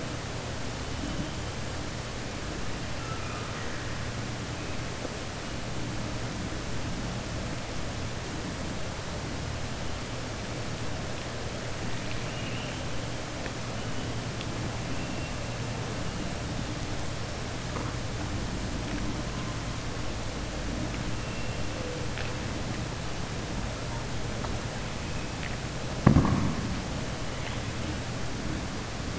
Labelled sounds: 2.9	3.8	killer whale, southern resident, 1.2 to 2.7 kHz
12.0	12.8	killer whale, southern resident, 1.9 to 3.1 kHz

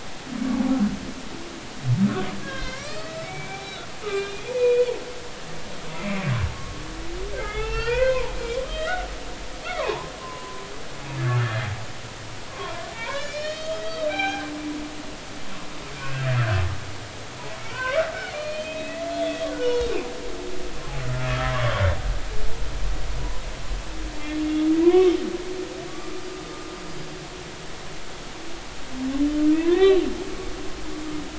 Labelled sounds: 2.4	4.9	humpback whale, 0.99 to 5.2 kHz
5.9	6.2	humpback whale, 2.0 to 2.7 kHz
6.5	9.1	humpback whale, 0.80 to 5.5 kHz
9.7	10.6	humpback whale, 0.80 to 1.5 kHz
11.3	11.6	humpback whale, 1.3 to 1.9 kHz
12.5	14.5	humpback whale, 0.80 to 5.6 kHz
15.9	16.2	humpback whale, 1.4 to 2.7 kHz
17.6	19.9	humpback whale, 0.86 to 4.4 kHz
21.0	21.8	humpback whale, 0.99 to 1.5 kHz
24.8	25.2	humpback whale, 0.93 to 2.3 kHz
25.9	26.2	humpback whale, 1.1 to 1.2 kHz
29.6	30.0	humpback whale, 0.93 to 4.0 kHz

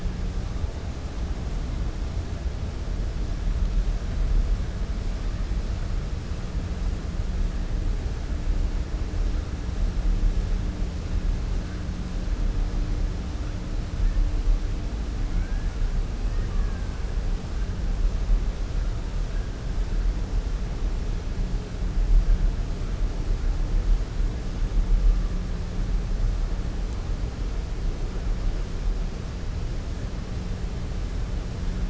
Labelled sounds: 16.3	16.8	killer whale, 1.1 to 2.6 kHz

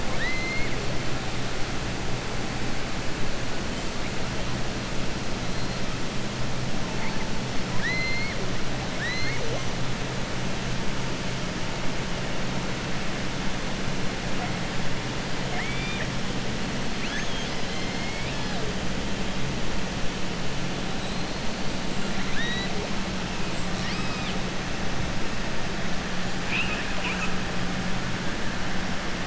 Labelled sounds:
0.0	0.7	killer whale, southern resident, 1.0 to 4.9 kHz
7.7	8.4	killer whale, southern resident, 1.0 to 4.5 kHz
8.9	9.6	killer whale, southern resident, 0.46 to 6.2 kHz
15.4	16.1	killer whale, southern resident, 0.83 to 3.7 kHz
16.9	18.6	killer whale, southern resident, 0.71 to 6.5 kHz
22.2	22.7	killer whale, southern resident, 1.4 to 4.6 kHz
26.4	27.3	killer whale, southern resident, 1.0 to 3.9 kHz

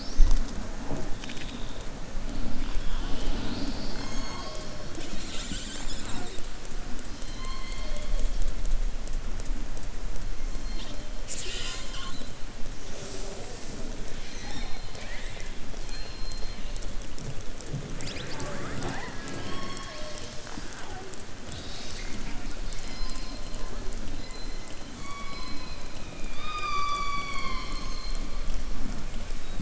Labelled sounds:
7.2	8.1	killer whale, southern resident, 0.62 to 4.5 kHz

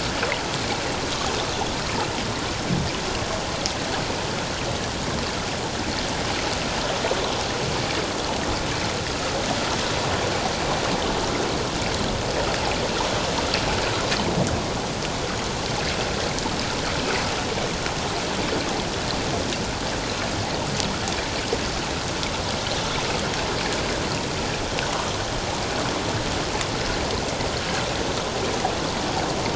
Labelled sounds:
27.6	27.9	water noise, 1.3 to 1.7 kHz

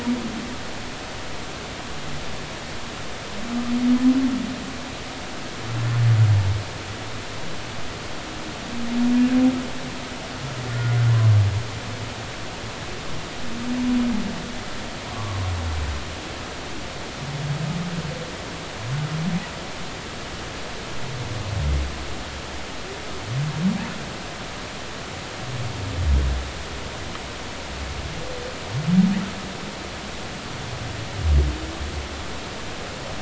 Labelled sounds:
10.7	10.9	humpback whale, 1.4 to 1.5 kHz
15.1	15.4	humpback whale, 0.99 to 1.2 kHz

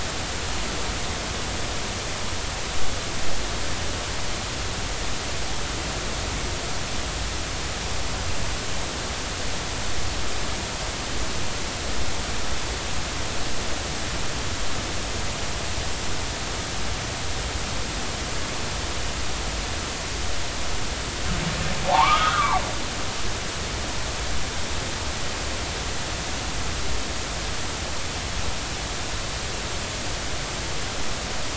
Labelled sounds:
21.9	22.6	humpback whale, 0.80 to 1.5 kHz

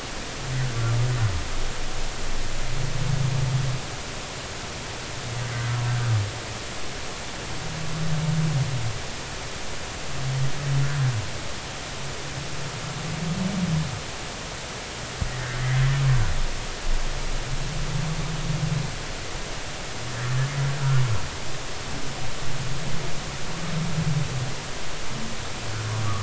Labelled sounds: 15.6	15.9	humpback whale, 1.8 to 2.1 kHz

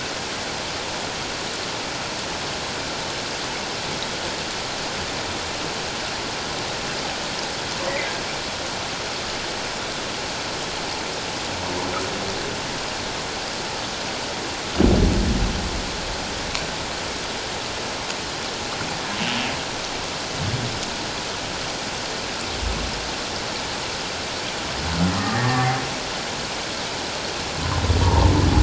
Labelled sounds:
25.3	25.8	humpback whale, 0.78 to 1.9 kHz
28.0	28.3	humpback whale, 0.84 to 1.0 kHz

